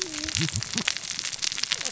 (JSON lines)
{"label": "biophony, cascading saw", "recorder": "SoundTrap 600 or HydroMoth"}